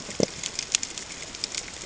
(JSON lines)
{"label": "ambient", "recorder": "HydroMoth"}